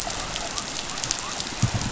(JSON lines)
{"label": "biophony", "recorder": "SoundTrap 500"}